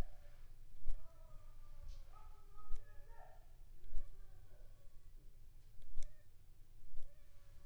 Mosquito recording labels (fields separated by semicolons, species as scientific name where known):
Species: Anopheles gambiae s.l.; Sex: female; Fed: unfed; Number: one; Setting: cup